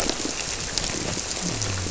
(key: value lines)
label: biophony
recorder: SoundTrap 300